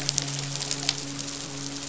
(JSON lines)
{"label": "biophony, midshipman", "recorder": "SoundTrap 500"}